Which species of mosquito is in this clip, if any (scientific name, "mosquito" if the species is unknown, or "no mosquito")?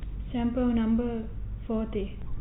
no mosquito